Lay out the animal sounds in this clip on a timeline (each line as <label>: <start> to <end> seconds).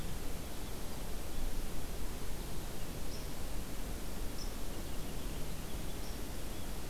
unidentified call: 3.0 to 6.9 seconds
Purple Finch (Haemorhous purpureus): 4.6 to 6.7 seconds